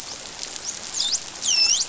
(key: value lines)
label: biophony, dolphin
recorder: SoundTrap 500